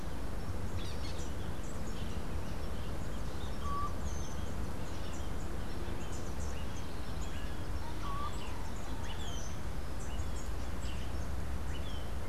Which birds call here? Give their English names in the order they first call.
Orange-fronted Parakeet